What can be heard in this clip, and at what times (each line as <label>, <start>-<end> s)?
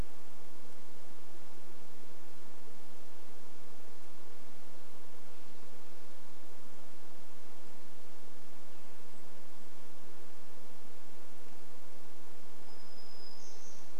Golden-crowned Kinglet song, 8-10 s
warbler song, 12-14 s